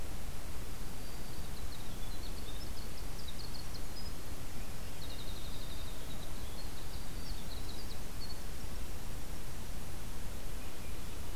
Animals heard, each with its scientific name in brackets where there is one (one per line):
Winter Wren (Troglodytes hiemalis)